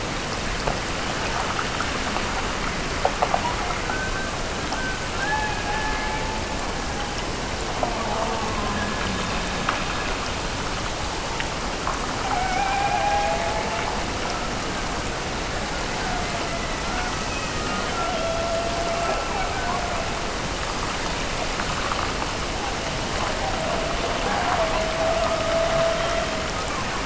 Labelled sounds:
5.1	7.4	killer whale, Bigg's (transient), Gulf of Alaska transient, 0.65 to 3.0 kHz
12.2	14.0	killer whale, Bigg's (transient), Gulf of Alaska transient, 0.48 to 2.6 kHz
15.9	17.6	killer whale, Bigg's (transient), Gulf of Alaska transient, 0.50 to 2.2 kHz
17.9	20.3	killer whale, Bigg's (transient), Gulf of Alaska transient, 0.48 to 1.8 kHz
23.1	26.6	killer whale, Bigg's (transient), Gulf of Alaska transient, 0.44 to 1.8 kHz

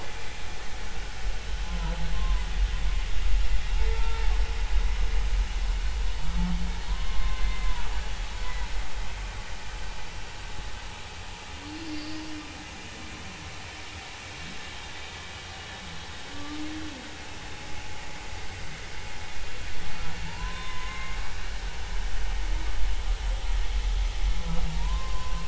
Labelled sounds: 1.6	2.5	humpback whale, 0.90 to 1.1 kHz
3.9	4.3	humpback whale, 0.83 to 1.4 kHz
6.9	7.7	humpback whale, 0.93 to 2.1 kHz
11.9	12.2	humpback whale, 4.4 to 4.7 kHz
16.3	16.6	humpback whale, 1.1 to 1.2 kHz
20.3	21.2	humpback whale, 0.86 to 3.6 kHz
24.8	25.4	humpback whale, 0.90 to 1.1 kHz

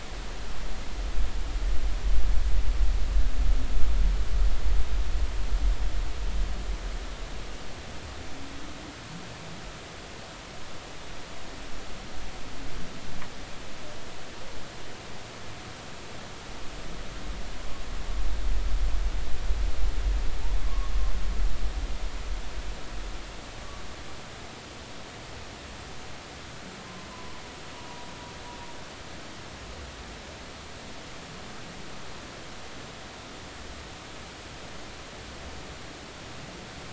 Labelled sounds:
20.6	20.9	humpback whale, 0.99 to 1.2 kHz
27.1	27.4	humpback whale, 0.90 to 1.1 kHz
27.7	28.1	humpback whale, 0.93 to 1.0 kHz

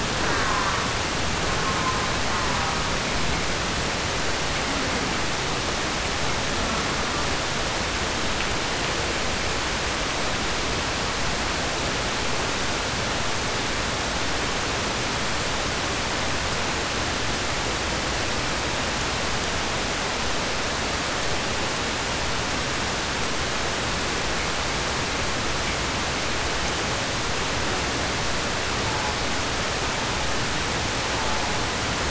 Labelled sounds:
0.0	1.0	killer whale, southern resident, 0.31 to 2.6 kHz
1.3	3.0	killer whale, southern resident, 0.43 to 2.0 kHz
6.4	7.4	killer whale, southern resident, 0.12 to 1.6 kHz
28.6	29.2	killer whale, southern resident, 0.31 to 1.5 kHz
29.8	30.4	killer whale, southern resident, 0.21 to 1.5 kHz
31.0	31.7	killer whale, southern resident, 0.24 to 1.4 kHz

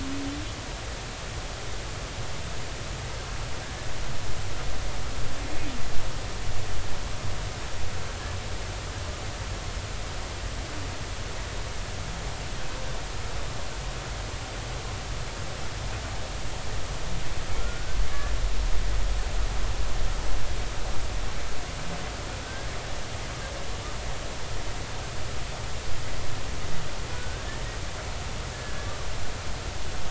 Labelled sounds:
17.6	18.0	humpback whale, 1.3 to 1.6 kHz
22.4	22.7	humpback whale, 1.5 to 1.7 kHz
27.1	27.5	humpback whale, 1.4 to 1.7 kHz

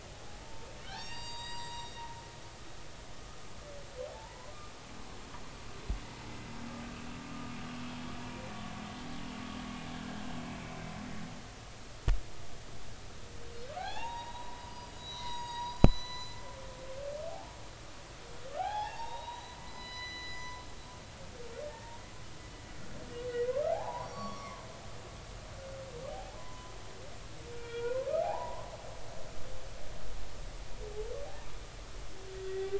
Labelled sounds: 0.4	2.0	humpback whale, 0.86 to 7.7 kHz
4.1	4.5	humpback whale, 0.80 to 1.1 kHz
13.8	16.4	humpback whale, 0.80 to 7.0 kHz
18.5	20.5	humpback whale, 0.80 to 7.0 kHz
21.6	21.9	humpback whale, 1.7 to 1.9 kHz
23.7	24.6	humpback whale, 0.80 to 5.8 kHz
26.1	26.7	humpback whale, 0.80 to 1.1 kHz
27.5	28.7	humpback whale, 0.80 to 2.9 kHz
32.5	32.7	humpback whale, 1.8 to 2.0 kHz

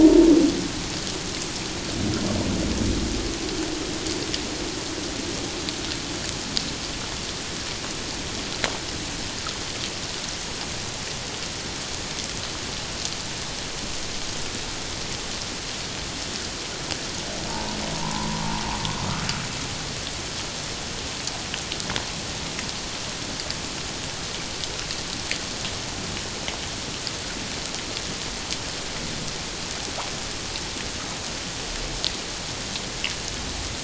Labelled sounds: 0.0	0.3	humpback whale, 0.84 to 0.97 kHz
17.5	18.4	humpback whale, 0.81 to 1.1 kHz

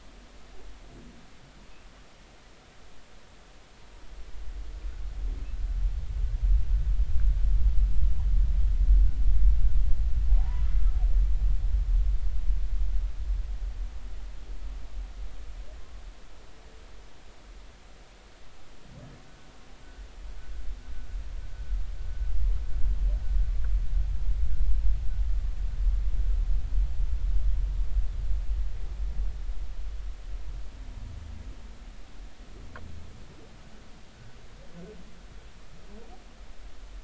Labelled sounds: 10.3	10.6	humpback whale, 0.80 to 1.1 kHz

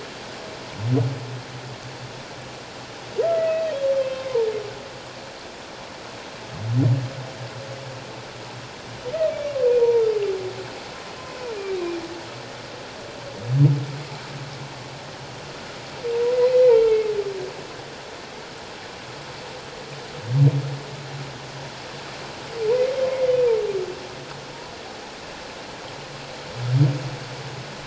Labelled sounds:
3.3	3.7	humpback whale, 1.9 to 2.0 kHz
9.3	10.0	humpback whale, 0.88 to 2.4 kHz
23.1	23.3	humpback whale, 2.0 to 2.2 kHz

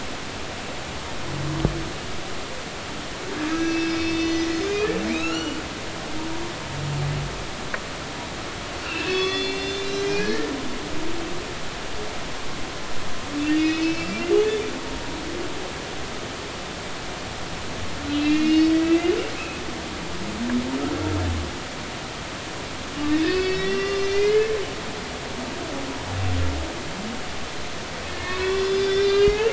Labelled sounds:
3.5	5.6	humpback whale, 1.2 to 7.4 kHz
8.8	10.5	humpback whale, 1.1 to 7.9 kHz
13.5	14.7	humpback whale, 2.2 to 5.4 kHz
18.1	19.6	humpback whale, 1.9 to 5.2 kHz
23.1	24.5	humpback whale, 1.1 to 6.0 kHz
28.1	29.5	humpback whale, 1.6 to 5.6 kHz

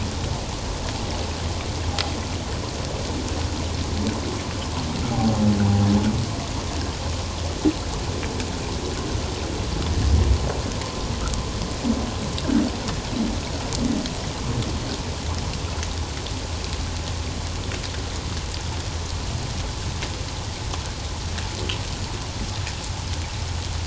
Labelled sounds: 5.1	5.4	humpback whale, 0.78 to 0.88 kHz

